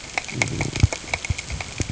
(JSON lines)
{"label": "ambient", "recorder": "HydroMoth"}